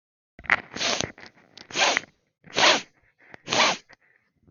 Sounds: Sniff